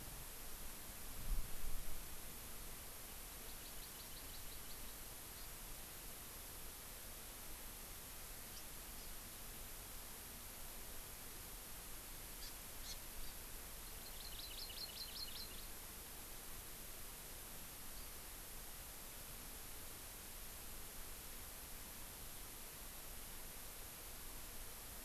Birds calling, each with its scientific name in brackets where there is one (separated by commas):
House Finch (Haemorhous mexicanus), Hawaii Amakihi (Chlorodrepanis virens)